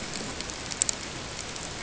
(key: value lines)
label: ambient
recorder: HydroMoth